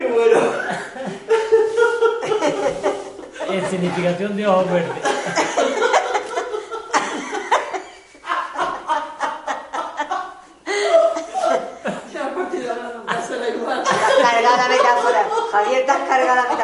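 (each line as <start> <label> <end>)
0.0 A man is speaking loudly. 0.8
1.2 A man laughs loudly. 2.2
2.2 Two people laughing simultaneously. 3.2
3.4 A man is speaking loudly. 5.0
3.4 A person laughing in the distance. 5.0
5.1 Two people laughing simultaneously. 12.2
12.2 A woman is speaking faintly in the distance. 13.9
13.8 A man laughs loudly. 16.6
13.8 A woman is speaking loudly. 16.6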